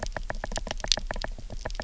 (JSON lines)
{"label": "biophony, knock", "recorder": "SoundTrap 300"}